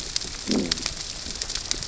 {"label": "biophony, growl", "recorder": "SoundTrap 600 or HydroMoth"}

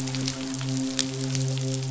{"label": "biophony, midshipman", "recorder": "SoundTrap 500"}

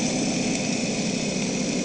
{"label": "anthrophony, boat engine", "recorder": "HydroMoth"}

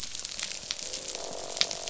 {"label": "biophony, croak", "recorder": "SoundTrap 500"}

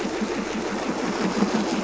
{"label": "anthrophony, boat engine", "recorder": "SoundTrap 500"}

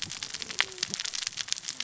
{"label": "biophony, cascading saw", "recorder": "SoundTrap 600 or HydroMoth"}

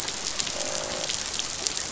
{"label": "biophony, croak", "recorder": "SoundTrap 500"}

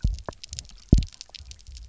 {"label": "biophony, double pulse", "recorder": "SoundTrap 300"}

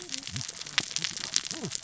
{"label": "biophony, cascading saw", "recorder": "SoundTrap 600 or HydroMoth"}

